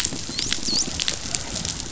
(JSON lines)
{"label": "biophony, dolphin", "recorder": "SoundTrap 500"}